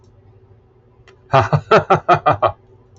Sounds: Laughter